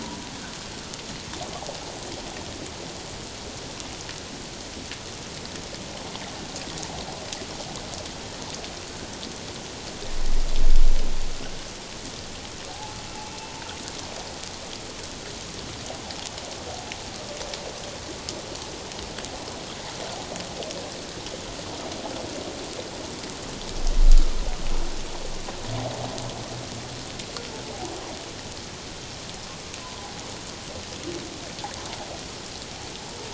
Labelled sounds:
0.0	0.3	humpback whale, 0.88 to 1.0 kHz
12.7	13.0	humpback whale, 0.78 to 0.91 kHz
29.8	30.1	humpback whale, 0.94 to 1.1 kHz

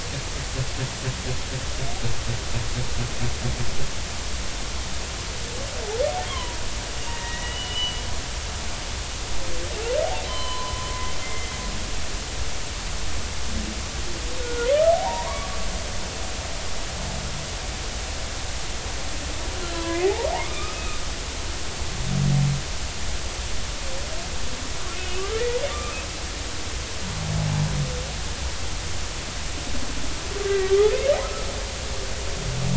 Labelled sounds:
6.3	6.6	humpback whale, 0.93 to 3.4 kHz
7.1	8.0	humpback whale, 1.8 to 3.0 kHz
10.3	10.9	humpback whale, 0.93 to 3.3 kHz
11.2	11.5	humpback whale, 2.0 to 2.1 kHz
14.4	15.5	humpback whale, 0.80 to 1.5 kHz
19.7	21.0	humpback whale, 0.80 to 2.6 kHz
24.9	25.9	humpback whale, 2.1 to 2.7 kHz
30.5	30.7	humpback whale, 1.9 to 2.0 kHz

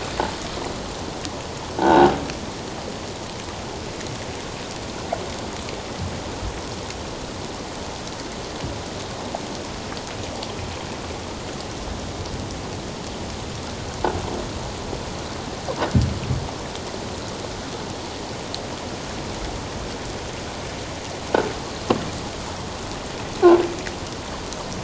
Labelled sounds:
1.8	2.2	croaking sound likely from a nearby submerged object, 0.78 to 1.7 kHz

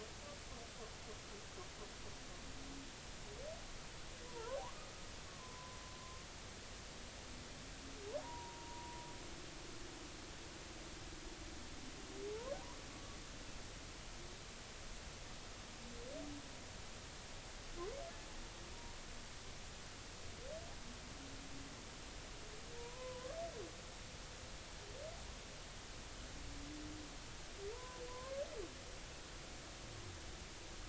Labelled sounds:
4.2	4.6	humpback whale, 0.83 to 1.2 kHz
5.3	5.8	humpback whale, 0.96 to 1.2 kHz
8.2	9.0	humpback whale, 0.90 to 1.0 kHz
22.8	23.4	humpback whale, 0.90 to 1.2 kHz
27.7	28.4	humpback whale, 0.86 to 1.1 kHz

